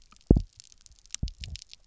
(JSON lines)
{"label": "biophony, double pulse", "recorder": "SoundTrap 300"}